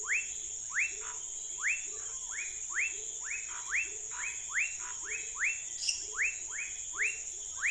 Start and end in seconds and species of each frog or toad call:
0.0	7.7	Leptodactylus fuscus
0.0	7.7	Leptodactylus labyrinthicus
0.0	7.7	Physalaemus nattereri
1.0	1.2	Scinax fuscovarius
2.0	2.1	Boana raniceps
3.4	5.0	Scinax fuscovarius
5.7	6.0	Dendropsophus minutus
Brazil, 8pm

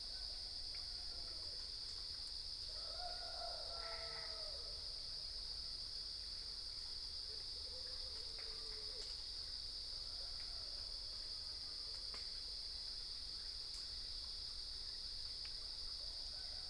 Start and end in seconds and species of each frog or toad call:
3.6	4.8	Boana albopunctata
Brazil, 4am

